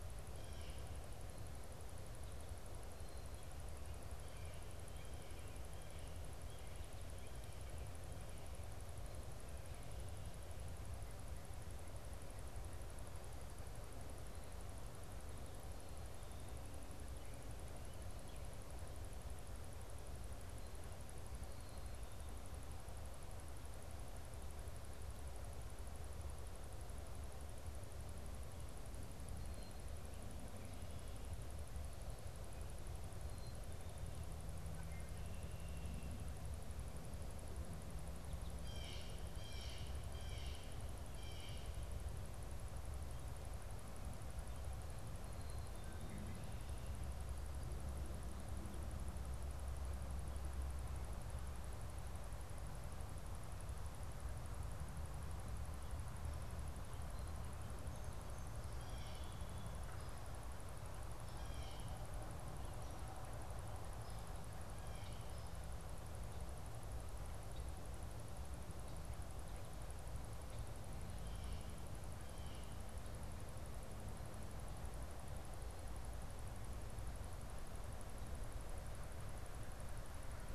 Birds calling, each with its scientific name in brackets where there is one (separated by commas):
Blue Jay (Cyanocitta cristata), Red-winged Blackbird (Agelaius phoeniceus)